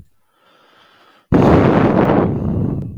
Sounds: Sigh